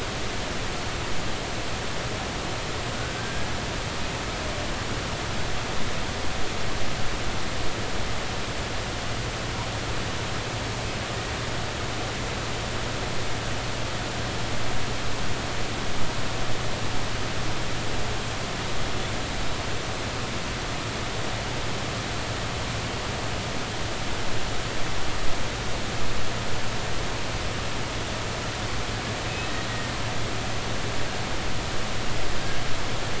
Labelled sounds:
2.9	3.5	killer whale, Bigg's (transient), 1.4 to 1.7 kHz
29.7	30.0	killer whale, Bigg's (transient), 1.8 to 1.9 kHz

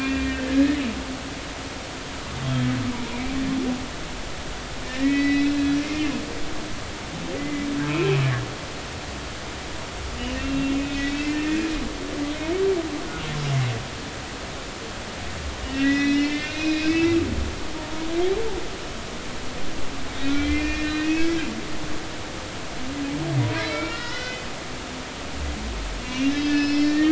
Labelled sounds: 4.8	6.6	humpback whale, 1.7 to 4.1 kHz
7.4	8.3	humpback whale, 2.0 to 2.7 kHz
10.2	11.6	humpback whale, 1.8 to 3.4 kHz
15.7	17.2	humpback whale, 1.6 to 5.7 kHz
18.0	18.3	humpback whale, 1.1 to 1.4 kHz
20.3	21.4	humpback whale, 1.5 to 3.4 kHz
23.4	24.5	humpback whale, 0.93 to 4.4 kHz
25.0	27.1	humpback whale, 1.7 to 5.7 kHz

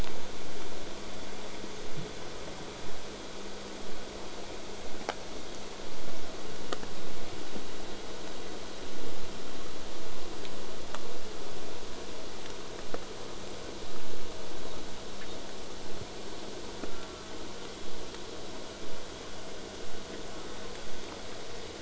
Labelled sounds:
16.8	17.4	killer whale, southern resident, J pod, call S04, 0.29 to 1.6 kHz
20.3	20.9	killer whale, southern resident, J pod, call S04, 0.25 to 1.5 kHz

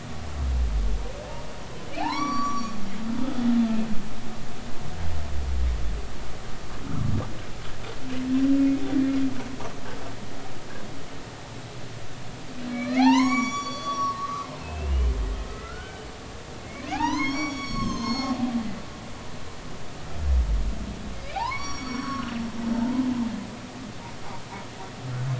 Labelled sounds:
1.9	2.8	humpback whale, 0.80 to 8.0 kHz
6.8	7.1	humpback whale, 1.0 to 1.5 kHz
12.7	16.1	humpback whale, 0.80 to 6.9 kHz
16.6	18.4	humpback whale, 0.80 to 6.8 kHz
21.4	22.3	humpback whale, 0.80 to 6.8 kHz
22.7	23.0	humpback whale, 0.83 to 1.0 kHz

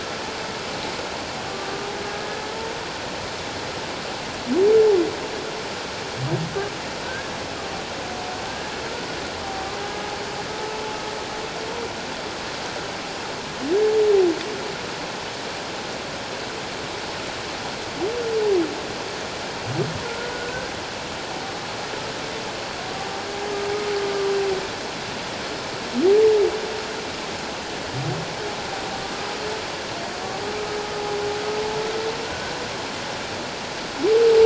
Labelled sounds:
7.0	7.3	humpback whale, 1.5 to 1.7 kHz
20.1	20.7	humpback whale, 1.4 to 1.6 kHz
32.2	32.6	humpback whale, 1.4 to 1.6 kHz

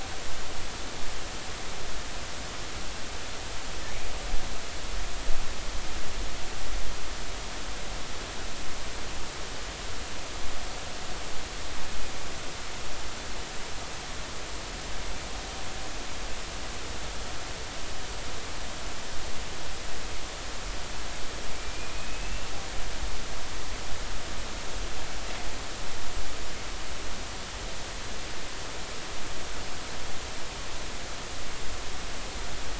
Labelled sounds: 21.5	22.5	killer whale, Bigg's (transient), 2.3 to 2.8 kHz

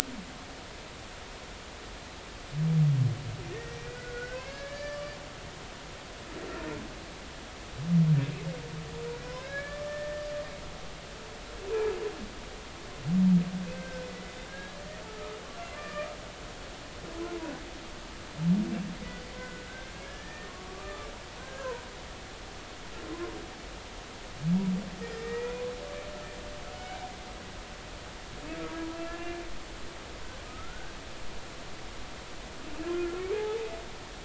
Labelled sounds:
3.5	5.1	humpback whale, 1.1 to 4.8 kHz
9.3	10.3	humpback whale, 1.5 to 4.0 kHz
13.7	14.8	humpback whale, 1.5 to 2.0 kHz
15.8	16.1	humpback whale, 1.1 to 2.5 kHz
19.4	21.9	humpback whale, 0.90 to 2.2 kHz
25.0	25.6	humpback whale, 1.8 to 2.5 kHz
26.7	27.1	humpback whale, 1.4 to 2.4 kHz
28.9	29.4	humpback whale, 1.3 to 1.8 kHz
30.5	31.0	humpback whale, 1.2 to 1.7 kHz
32.8	33.6	humpback whale, 0.80 to 1.4 kHz

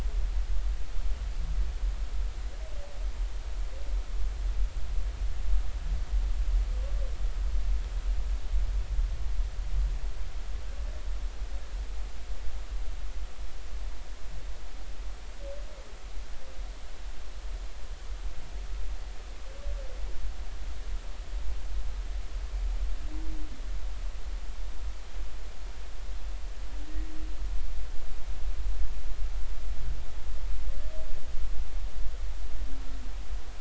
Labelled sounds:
26.9	27.1	humpback whale, 1.8 to 2.0 kHz

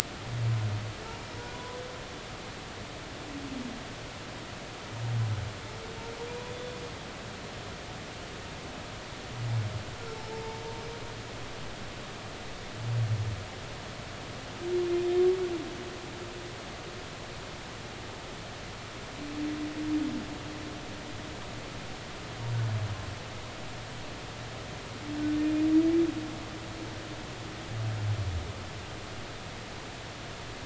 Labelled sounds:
1.5	1.8	humpback whale, 0.93 to 1.1 kHz
6.4	6.8	humpback whale, 3.4 to 3.5 kHz
10.1	10.6	humpback whale, 0.83 to 0.93 kHz

